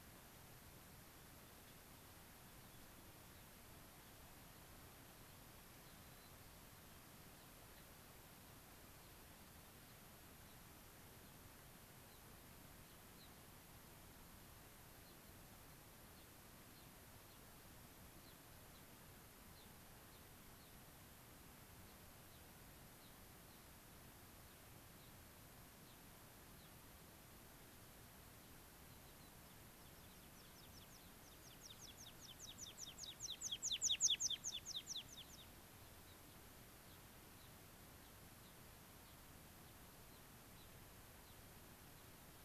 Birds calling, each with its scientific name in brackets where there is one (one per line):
American Pipit (Anthus rubescens)
White-crowned Sparrow (Zonotrichia leucophrys)
Gray-crowned Rosy-Finch (Leucosticte tephrocotis)